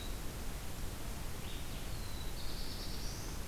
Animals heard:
Blue-headed Vireo (Vireo solitarius), Black-throated Blue Warbler (Setophaga caerulescens)

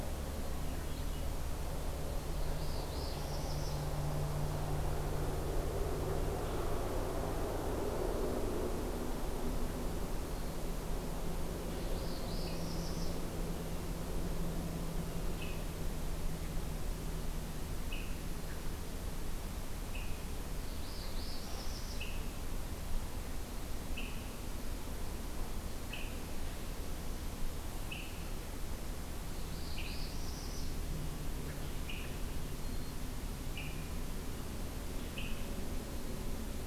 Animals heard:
Northern Parula (Setophaga americana), Golden-crowned Kinglet (Regulus satrapa), Swainson's Thrush (Catharus ustulatus)

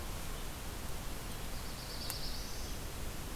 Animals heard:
Black-throated Blue Warbler (Setophaga caerulescens)

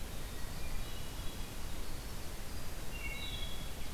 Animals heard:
Rose-breasted Grosbeak (Pheucticus ludovicianus), Winter Wren (Troglodytes hiemalis), Wood Thrush (Hylocichla mustelina), Hermit Thrush (Catharus guttatus)

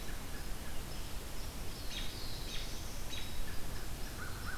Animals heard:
American Robin (Turdus migratorius), American Crow (Corvus brachyrhynchos), Black-throated Blue Warbler (Setophaga caerulescens)

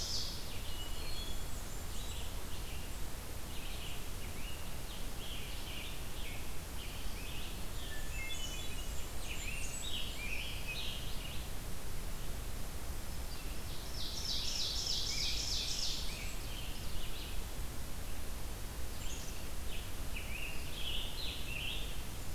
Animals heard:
Red-eyed Vireo (Vireo olivaceus), Black-capped Chickadee (Poecile atricapillus), Hermit Thrush (Catharus guttatus), Scarlet Tanager (Piranga olivacea), Ovenbird (Seiurus aurocapilla), Blackburnian Warbler (Setophaga fusca)

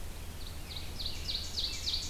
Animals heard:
American Robin (Turdus migratorius), Ovenbird (Seiurus aurocapilla)

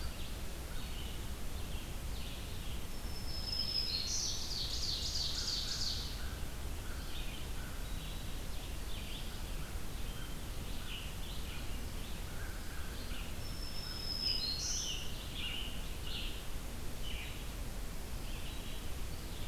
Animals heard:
Ovenbird (Seiurus aurocapilla), Black-throated Green Warbler (Setophaga virens), Red-eyed Vireo (Vireo olivaceus), American Crow (Corvus brachyrhynchos), Scarlet Tanager (Piranga olivacea)

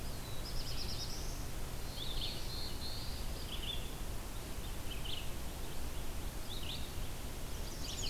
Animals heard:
Chestnut-sided Warbler (Setophaga pensylvanica), Red-eyed Vireo (Vireo olivaceus), Black-throated Blue Warbler (Setophaga caerulescens)

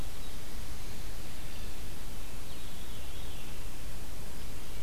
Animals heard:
Veery (Catharus fuscescens)

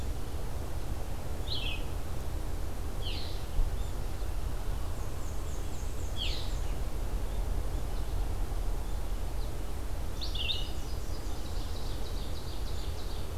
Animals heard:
Black-and-white Warbler (Mniotilta varia), Red-eyed Vireo (Vireo olivaceus), Ovenbird (Seiurus aurocapilla), Nashville Warbler (Leiothlypis ruficapilla)

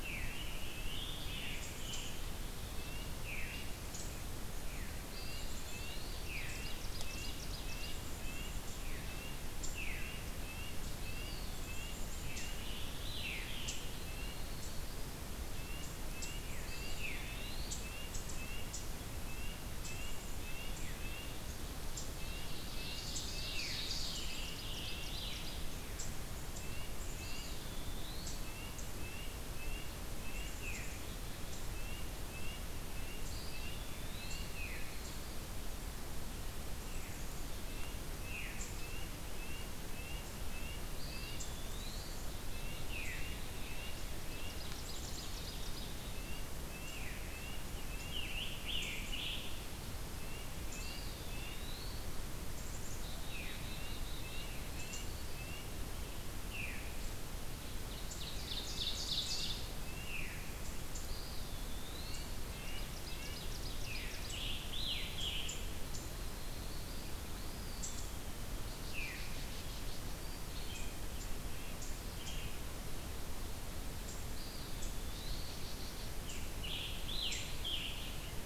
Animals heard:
Eastern Wood-Pewee (Contopus virens), Black-throated Green Warbler (Setophaga virens), Black-capped Chickadee (Poecile atricapillus), Scarlet Tanager (Piranga olivacea), Yellow-rumped Warbler (Setophaga coronata), Veery (Catharus fuscescens), Ovenbird (Seiurus aurocapilla), Red-breasted Nuthatch (Sitta canadensis)

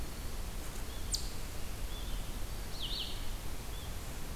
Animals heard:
Eastern Chipmunk (Tamias striatus)

